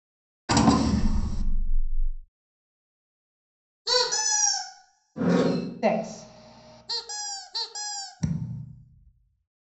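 At 0.49 seconds, a wooden drawer opens. Then at 3.85 seconds, squeaking is audible. Later, at 5.15 seconds, a wooden drawer opens. Next, at 5.82 seconds, a voice says "Six." Following that, at 6.87 seconds, the sound of squeaking can be heard. Then at 8.19 seconds, thumping is heard.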